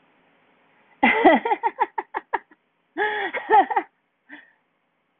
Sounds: Laughter